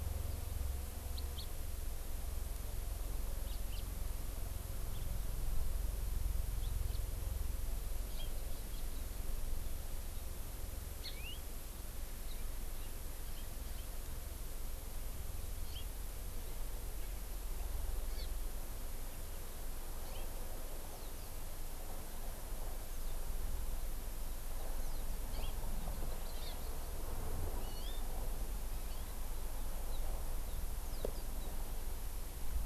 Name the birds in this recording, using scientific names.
Haemorhous mexicanus, Chlorodrepanis virens